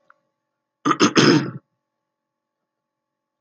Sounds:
Throat clearing